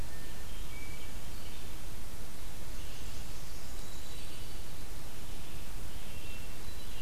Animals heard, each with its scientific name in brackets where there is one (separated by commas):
Blackburnian Warbler (Setophaga fusca), Red-eyed Vireo (Vireo olivaceus), Hermit Thrush (Catharus guttatus)